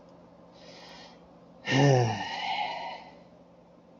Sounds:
Sigh